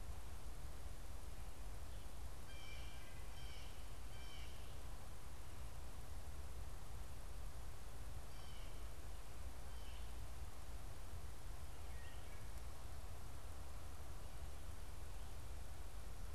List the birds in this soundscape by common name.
Blue Jay, Wood Thrush